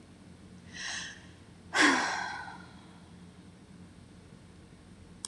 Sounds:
Sigh